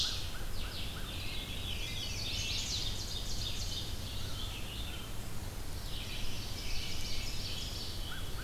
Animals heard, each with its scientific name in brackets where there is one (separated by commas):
Chestnut-sided Warbler (Setophaga pensylvanica), American Crow (Corvus brachyrhynchos), Veery (Catharus fuscescens), American Robin (Turdus migratorius), Ovenbird (Seiurus aurocapilla), Red-eyed Vireo (Vireo olivaceus)